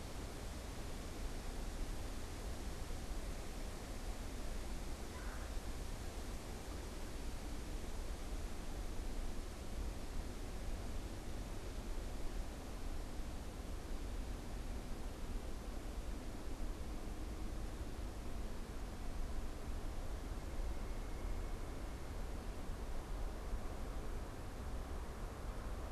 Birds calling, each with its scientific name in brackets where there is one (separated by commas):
Red-bellied Woodpecker (Melanerpes carolinus)